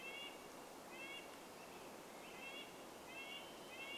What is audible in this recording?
Red-breasted Nuthatch song, Swainson's Thrush song, Varied Thrush song